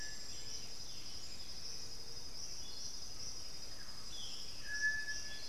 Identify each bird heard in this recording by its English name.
Boat-billed Flycatcher, Black-billed Thrush, Striped Cuckoo